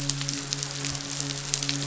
{"label": "biophony, midshipman", "recorder": "SoundTrap 500"}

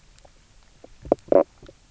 {"label": "biophony, knock croak", "recorder": "SoundTrap 300"}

